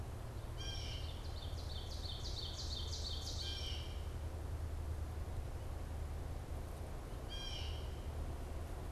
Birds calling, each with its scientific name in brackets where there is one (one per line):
Ovenbird (Seiurus aurocapilla)
Blue Jay (Cyanocitta cristata)